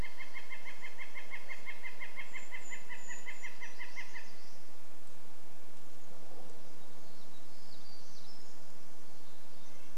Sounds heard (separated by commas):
Brown Creeper call, Red-breasted Nuthatch song, Northern Flicker call, warbler song